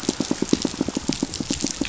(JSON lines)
{"label": "biophony, pulse", "recorder": "SoundTrap 500"}